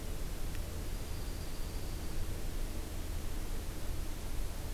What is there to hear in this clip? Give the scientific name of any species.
Junco hyemalis